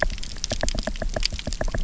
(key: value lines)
label: biophony, knock
recorder: SoundTrap 300